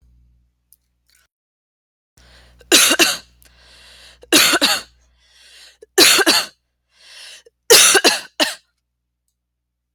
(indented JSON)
{
  "expert_labels": [
    {
      "quality": "ok",
      "cough_type": "dry",
      "dyspnea": false,
      "wheezing": false,
      "stridor": false,
      "choking": false,
      "congestion": false,
      "nothing": true,
      "diagnosis": "healthy cough",
      "severity": "pseudocough/healthy cough"
    }
  ],
  "age": 30,
  "gender": "female",
  "respiratory_condition": false,
  "fever_muscle_pain": false,
  "status": "symptomatic"
}